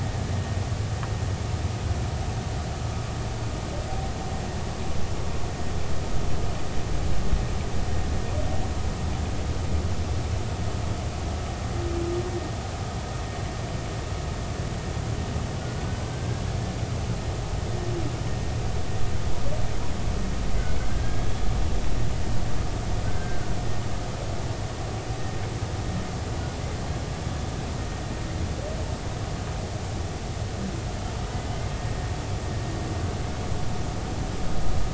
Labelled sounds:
16.1	16.4	humpback whale, 1.5 to 1.7 kHz
20.9	21.3	humpback whale, 1.5 to 1.7 kHz
23.0	23.5	humpback whale, 1.4 to 1.6 kHz

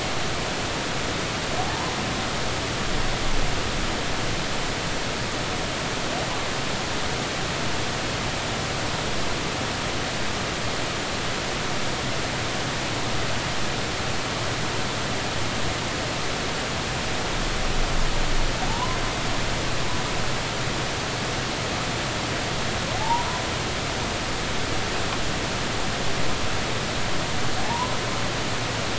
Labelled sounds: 18.7	19.0	humpback whale, 0.83 to 1.1 kHz
22.9	23.3	humpback whale, 0.80 to 1.0 kHz
27.6	27.9	humpback whale, 0.80 to 1.1 kHz

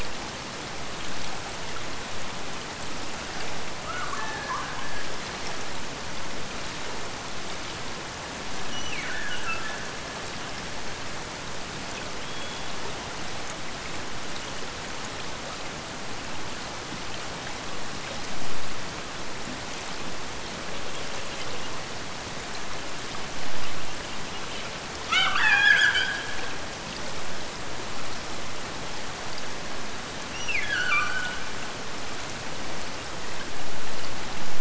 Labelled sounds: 3.8	5.4	killer whale, Bigg's (transient), Gulf of Alaska transient, 0.77 to 1.8 kHz
8.6	10.2	killer whale, Bigg's (transient), Gulf of Alaska transient, 1.2 to 3.1 kHz
24.9	26.7	killer whale, Bigg's (transient), Gulf of Alaska transient, 0.69 to 8.0 kHz
30.3	31.7	killer whale, Bigg's (transient), Gulf of Alaska transient, 1.1 to 6.0 kHz

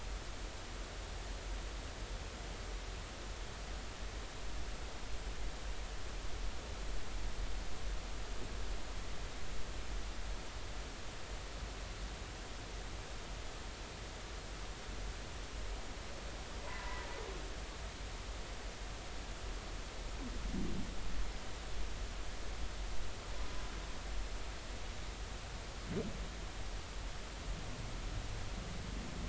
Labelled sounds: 16.8	17.1	humpback whale, 0.90 to 1.1 kHz

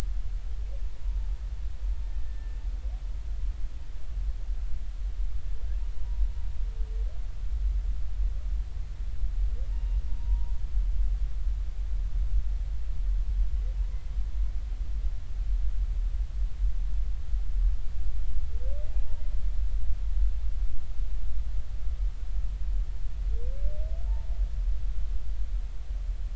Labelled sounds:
2.2	2.6	humpback whale, 1.7 to 1.9 kHz
9.7	10.5	humpback whale, 0.86 to 2.9 kHz
18.9	19.2	humpback whale, 0.80 to 0.99 kHz

